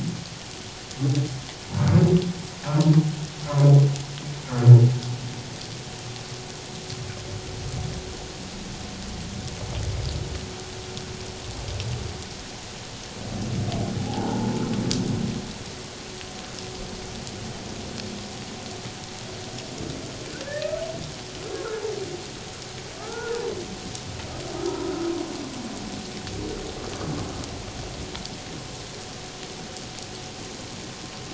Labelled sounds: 3.5	3.7	humpback whale, 0.94 to 1.2 kHz
14.0	14.6	humpback whale, 0.78 to 0.97 kHz
20.4	20.8	humpback whale, 1.2 to 1.9 kHz
22.9	23.4	humpback whale, 0.81 to 1.5 kHz
24.5	24.9	humpback whale, 0.91 to 1.4 kHz

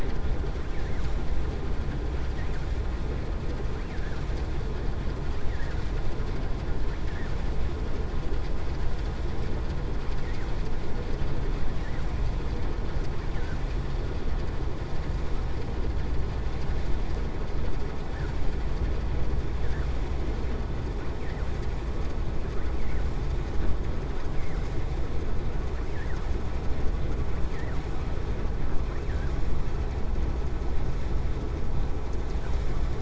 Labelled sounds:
28.8	29.3	vessel noise, 1.0 to 2.6 kHz

